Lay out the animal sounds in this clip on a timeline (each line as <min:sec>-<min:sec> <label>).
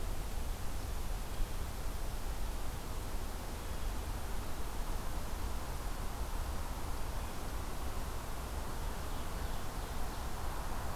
0:08.6-0:10.3 Ovenbird (Seiurus aurocapilla)